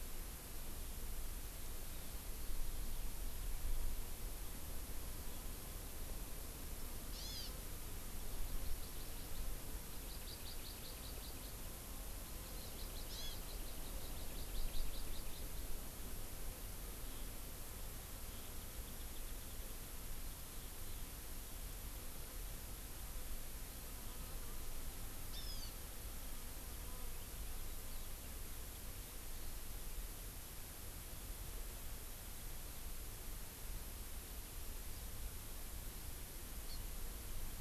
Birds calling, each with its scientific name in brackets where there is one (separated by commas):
Warbling White-eye (Zosterops japonicus), Hawaiian Hawk (Buteo solitarius), Hawaii Amakihi (Chlorodrepanis virens)